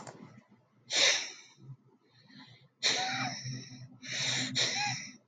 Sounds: Sniff